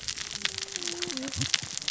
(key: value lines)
label: biophony, cascading saw
recorder: SoundTrap 600 or HydroMoth